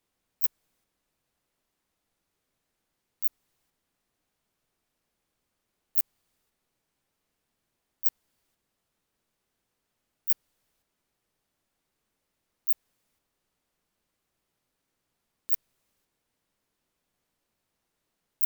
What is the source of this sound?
Phaneroptera nana, an orthopteran